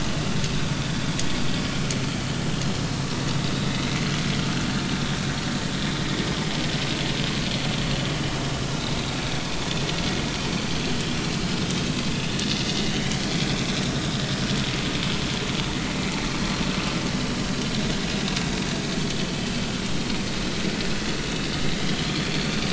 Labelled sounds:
19.0	19.3	vessel noise, 3.2 to 3.5 kHz
19.9	20.2	vessel noise, 4.2 to 4.4 kHz
22.1	22.5	vessel noise, 4.4 to 4.6 kHz

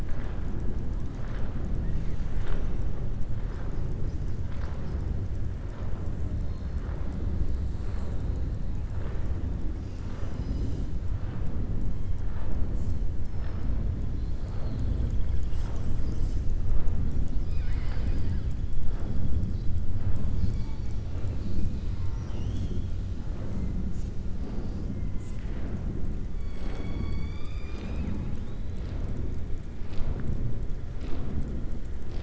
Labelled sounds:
17.0	18.4	killer whale, southern resident, 0.84 to 7.8 kHz

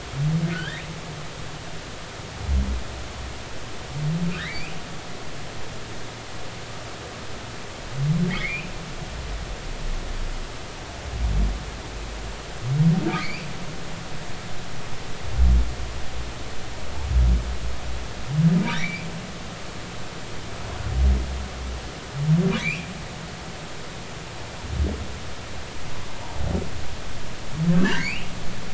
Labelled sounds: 0.5	0.9	humpback whale, 1.4 to 3.9 kHz
4.3	4.7	humpback whale, 1.3 to 2.8 kHz
8.3	8.7	humpback whale, 1.8 to 2.9 kHz
13.2	13.5	humpback whale, 1.9 to 2.7 kHz
18.6	19.1	humpback whale, 1.7 to 2.6 kHz
22.6	22.9	humpback whale, 2.1 to 2.9 kHz
27.7	28.3	humpback whale, 1.5 to 3.1 kHz

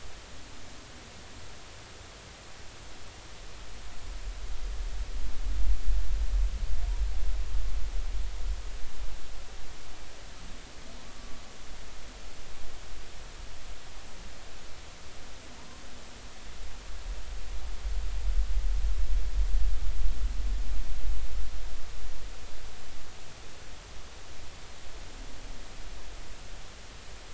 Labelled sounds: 11.2	11.4	humpback whale, 1.1 to 1.2 kHz

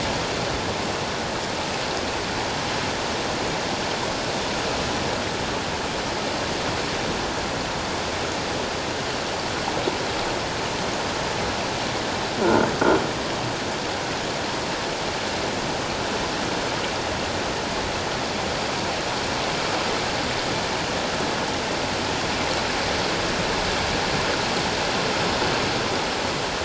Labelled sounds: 12.4	12.7	croaking sound likely from a nearby submerged object, 1.3 to 1.5 kHz

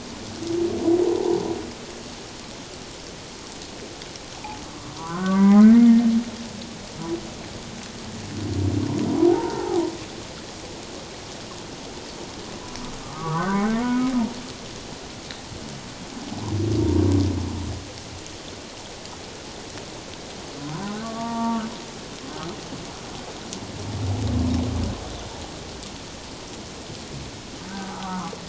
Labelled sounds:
4.3	4.6	humpback whale, 0.78 to 0.97 kHz
4.9	5.7	humpback whale, 0.91 to 2.2 kHz
9.3	9.8	humpback whale, 0.78 to 1.6 kHz
13.0	13.8	humpback whale, 0.91 to 2.2 kHz
20.7	21.6	humpback whale, 0.88 to 1.2 kHz
27.7	28.3	humpback whale, 0.97 to 1.7 kHz

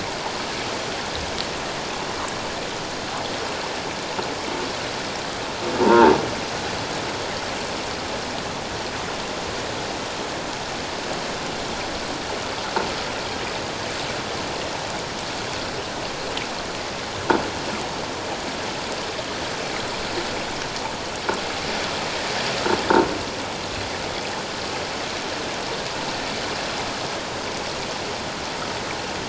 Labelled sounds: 5.8	6.1	croaking sound likely from a nearby submerged object, 0.84 to 1.1 kHz

